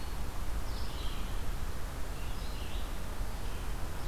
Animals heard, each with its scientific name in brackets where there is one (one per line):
Red-eyed Vireo (Vireo olivaceus)